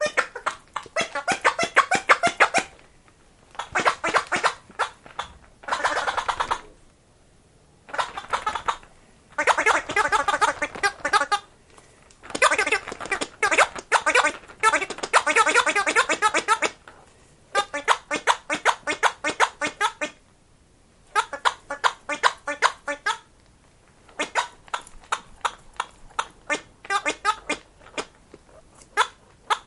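0.2s A toy doll produces odd laugh, hiccup, and gurgle sounds with short pauses. 29.6s

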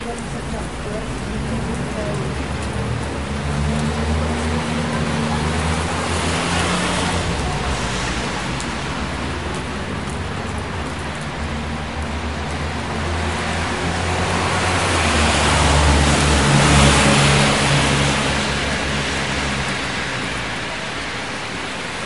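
0.0s Continuous rain with vehicles approaching in the background. 22.1s

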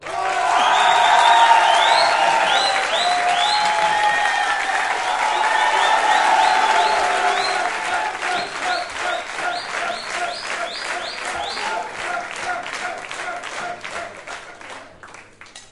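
0.1s A large audience enthusiastically cheers and applauds. 7.3s
7.4s A large group of people is enthusiastically clapping and cheering in rhythmic waves. 15.6s

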